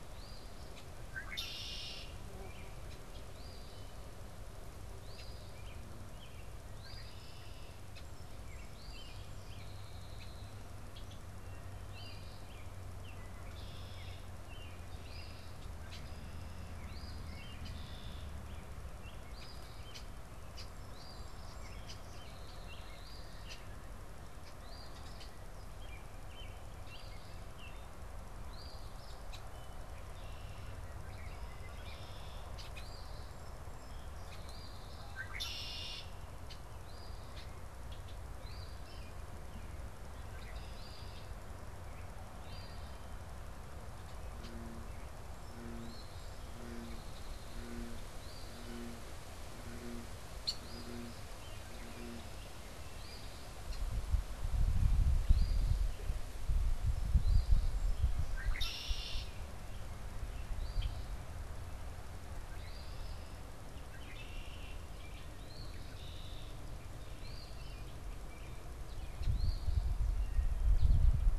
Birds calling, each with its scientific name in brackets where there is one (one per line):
Eastern Phoebe (Sayornis phoebe)
Song Sparrow (Melospiza melodia)
American Goldfinch (Spinus tristis)
Red-winged Blackbird (Agelaius phoeniceus)
American Robin (Turdus migratorius)